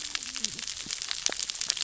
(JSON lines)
{"label": "biophony, cascading saw", "recorder": "SoundTrap 600 or HydroMoth"}